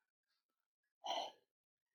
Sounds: Sigh